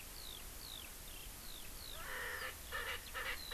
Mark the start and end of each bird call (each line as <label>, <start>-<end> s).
Eurasian Skylark (Alauda arvensis), 0.0-3.5 s
Erckel's Francolin (Pternistis erckelii), 2.0-3.5 s